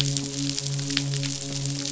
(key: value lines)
label: biophony, midshipman
recorder: SoundTrap 500